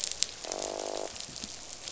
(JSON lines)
{"label": "biophony, croak", "recorder": "SoundTrap 500"}